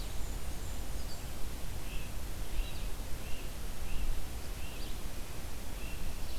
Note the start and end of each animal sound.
[0.00, 1.35] Blackburnian Warbler (Setophaga fusca)
[0.00, 6.38] Red-eyed Vireo (Vireo olivaceus)
[1.72, 6.09] Great Crested Flycatcher (Myiarchus crinitus)

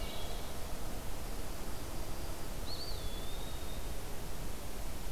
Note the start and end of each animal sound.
[0.00, 0.76] Wood Thrush (Hylocichla mustelina)
[2.46, 4.04] Eastern Wood-Pewee (Contopus virens)

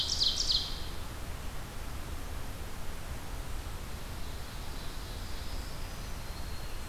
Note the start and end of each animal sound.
[0.00, 1.20] Ovenbird (Seiurus aurocapilla)
[4.05, 5.82] Ovenbird (Seiurus aurocapilla)
[5.54, 6.87] Black-throated Green Warbler (Setophaga virens)

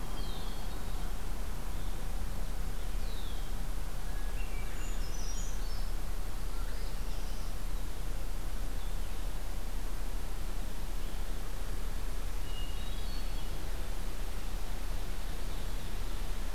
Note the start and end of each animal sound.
[0.00, 0.75] Red-winged Blackbird (Agelaius phoeniceus)
[0.02, 0.85] Hermit Thrush (Catharus guttatus)
[2.90, 3.60] Red-winged Blackbird (Agelaius phoeniceus)
[4.00, 5.25] Hermit Thrush (Catharus guttatus)
[4.63, 6.03] Brown Creeper (Certhia americana)
[6.44, 7.52] Northern Parula (Setophaga americana)
[12.40, 13.59] Hermit Thrush (Catharus guttatus)
[14.96, 16.54] Ovenbird (Seiurus aurocapilla)

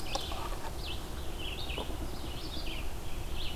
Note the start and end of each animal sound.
[0.00, 3.55] Red-eyed Vireo (Vireo olivaceus)

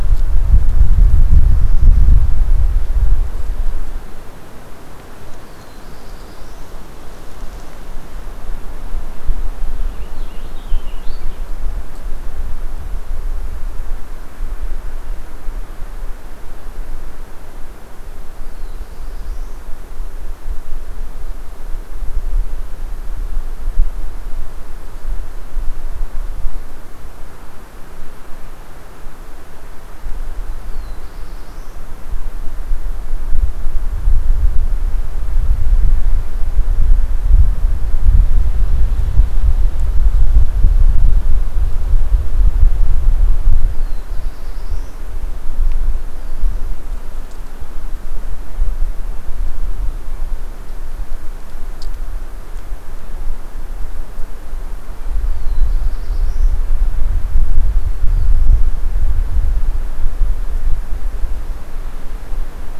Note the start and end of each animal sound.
[5.41, 6.76] Black-throated Blue Warbler (Setophaga caerulescens)
[9.75, 11.58] Purple Finch (Haemorhous purpureus)
[18.17, 19.78] Black-throated Blue Warbler (Setophaga caerulescens)
[30.34, 31.93] Black-throated Blue Warbler (Setophaga caerulescens)
[43.54, 45.15] Black-throated Blue Warbler (Setophaga caerulescens)
[55.06, 56.67] Black-throated Blue Warbler (Setophaga caerulescens)
[57.68, 58.74] Black-throated Blue Warbler (Setophaga caerulescens)

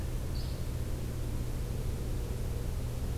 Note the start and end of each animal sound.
[0.31, 0.60] Yellow-bellied Flycatcher (Empidonax flaviventris)

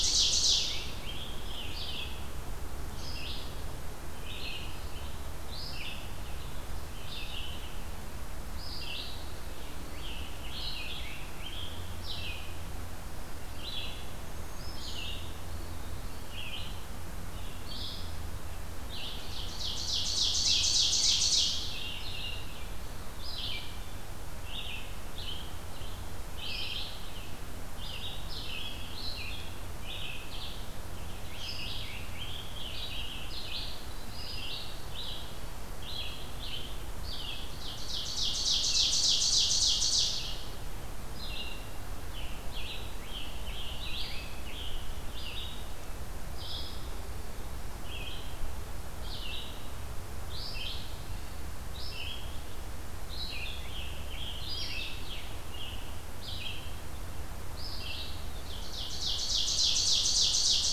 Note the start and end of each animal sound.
[0.00, 0.67] Ovenbird (Seiurus aurocapilla)
[0.00, 37.71] Red-eyed Vireo (Vireo olivaceus)
[0.41, 2.18] Scarlet Tanager (Piranga olivacea)
[9.52, 11.82] Scarlet Tanager (Piranga olivacea)
[14.04, 15.11] Black-throated Green Warbler (Setophaga virens)
[15.43, 16.40] Eastern Wood-Pewee (Contopus virens)
[18.98, 21.57] Ovenbird (Seiurus aurocapilla)
[20.28, 22.50] Scarlet Tanager (Piranga olivacea)
[30.82, 33.42] Scarlet Tanager (Piranga olivacea)
[37.66, 40.11] Ovenbird (Seiurus aurocapilla)
[38.41, 60.72] Red-eyed Vireo (Vireo olivaceus)
[42.05, 44.87] Scarlet Tanager (Piranga olivacea)
[53.17, 55.74] Scarlet Tanager (Piranga olivacea)
[58.50, 60.72] Ovenbird (Seiurus aurocapilla)

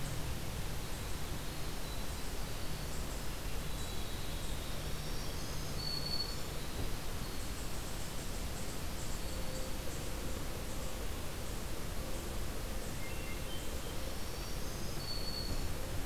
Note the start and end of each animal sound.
[0.61, 4.66] Winter Wren (Troglodytes hiemalis)
[3.27, 4.94] Hermit Thrush (Catharus guttatus)
[4.51, 6.88] Black-throated Green Warbler (Setophaga virens)
[8.89, 9.97] Black-throated Green Warbler (Setophaga virens)
[12.54, 13.94] Hermit Thrush (Catharus guttatus)
[13.68, 16.05] Black-throated Green Warbler (Setophaga virens)

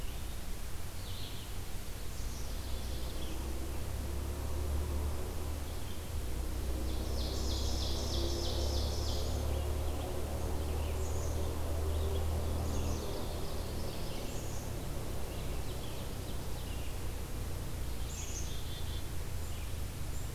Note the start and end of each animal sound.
[0.00, 20.35] Red-eyed Vireo (Vireo olivaceus)
[2.09, 3.43] Black-capped Chickadee (Poecile atricapillus)
[6.51, 9.57] Ovenbird (Seiurus aurocapilla)
[10.84, 11.36] Black-capped Chickadee (Poecile atricapillus)
[12.31, 14.41] Ovenbird (Seiurus aurocapilla)
[12.55, 13.23] Black-capped Chickadee (Poecile atricapillus)
[14.14, 14.76] Black-capped Chickadee (Poecile atricapillus)
[14.98, 16.98] Ovenbird (Seiurus aurocapilla)
[18.00, 19.12] Black-capped Chickadee (Poecile atricapillus)

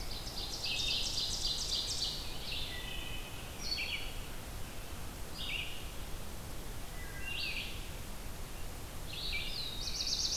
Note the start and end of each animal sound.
[0.00, 2.35] Ovenbird (Seiurus aurocapilla)
[0.00, 10.37] Red-eyed Vireo (Vireo olivaceus)
[1.25, 3.77] American Robin (Turdus migratorius)
[2.63, 3.39] Wood Thrush (Hylocichla mustelina)
[6.83, 7.53] Wood Thrush (Hylocichla mustelina)
[8.94, 10.37] Black-throated Blue Warbler (Setophaga caerulescens)
[9.22, 10.37] American Robin (Turdus migratorius)

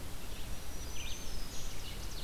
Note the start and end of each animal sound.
[0.00, 2.24] Red-eyed Vireo (Vireo olivaceus)
[0.32, 1.76] Black-throated Green Warbler (Setophaga virens)
[1.27, 2.24] Ovenbird (Seiurus aurocapilla)

